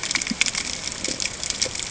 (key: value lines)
label: ambient
recorder: HydroMoth